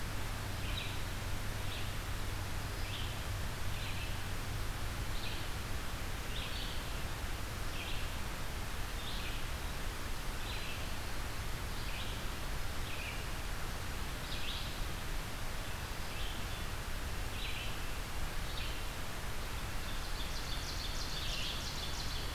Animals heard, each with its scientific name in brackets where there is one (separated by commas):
Ovenbird (Seiurus aurocapilla), Red-eyed Vireo (Vireo olivaceus)